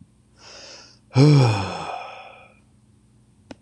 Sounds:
Sigh